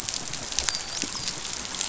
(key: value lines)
label: biophony, dolphin
recorder: SoundTrap 500